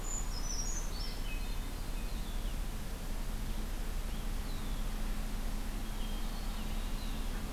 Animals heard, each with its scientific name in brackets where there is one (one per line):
Red-winged Blackbird (Agelaius phoeniceus)
Hermit Thrush (Catharus guttatus)
Brown Creeper (Certhia americana)